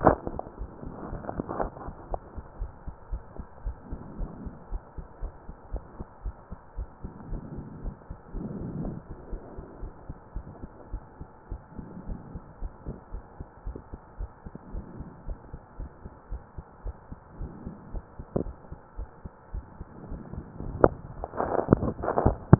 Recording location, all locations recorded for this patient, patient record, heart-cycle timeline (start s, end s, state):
pulmonary valve (PV)
pulmonary valve (PV)+mitral valve (MV)
#Age: nan
#Sex: Female
#Height: nan
#Weight: nan
#Pregnancy status: True
#Murmur: Absent
#Murmur locations: nan
#Most audible location: nan
#Systolic murmur timing: nan
#Systolic murmur shape: nan
#Systolic murmur grading: nan
#Systolic murmur pitch: nan
#Systolic murmur quality: nan
#Diastolic murmur timing: nan
#Diastolic murmur shape: nan
#Diastolic murmur grading: nan
#Diastolic murmur pitch: nan
#Diastolic murmur quality: nan
#Outcome: Normal
#Campaign: 2015 screening campaign
0.00	2.57	unannotated
2.57	2.72	S1
2.72	2.86	systole
2.86	2.96	S2
2.96	3.12	diastole
3.12	3.22	S1
3.22	3.38	systole
3.38	3.46	S2
3.46	3.64	diastole
3.64	3.76	S1
3.76	3.90	systole
3.90	4.00	S2
4.00	4.18	diastole
4.18	4.32	S1
4.32	4.44	systole
4.44	4.54	S2
4.54	4.70	diastole
4.70	4.82	S1
4.82	4.98	systole
4.98	5.06	S2
5.06	5.22	diastole
5.22	5.32	S1
5.32	5.48	systole
5.48	5.54	S2
5.54	5.72	diastole
5.72	5.84	S1
5.84	5.96	systole
5.96	6.06	S2
6.06	6.24	diastole
6.24	6.34	S1
6.34	6.52	systole
6.52	6.58	S2
6.58	6.78	diastole
6.78	6.88	S1
6.88	7.04	systole
7.04	7.14	S2
7.14	7.30	diastole
7.30	7.44	S1
7.44	7.54	systole
7.54	7.66	S2
7.66	7.82	diastole
7.82	7.96	S1
7.96	8.09	systole
8.09	8.18	S2
8.18	8.33	diastole
8.33	8.44	S1
8.44	22.59	unannotated